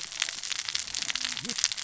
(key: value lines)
label: biophony, cascading saw
recorder: SoundTrap 600 or HydroMoth